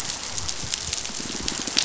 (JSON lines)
{"label": "biophony, pulse", "recorder": "SoundTrap 500"}